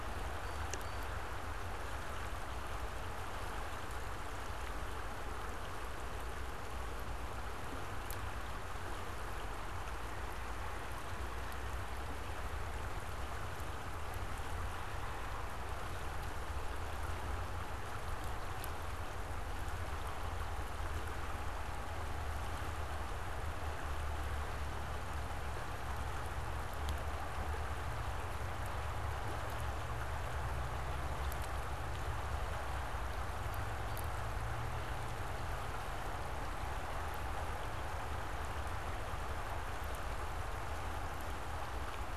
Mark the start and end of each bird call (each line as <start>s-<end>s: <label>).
0.2s-1.3s: Blue Jay (Cyanocitta cristata)
33.4s-34.2s: Blue Jay (Cyanocitta cristata)